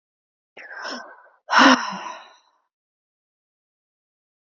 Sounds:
Sigh